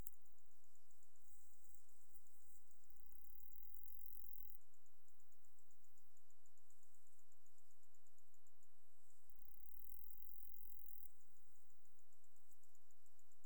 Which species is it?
Saga hellenica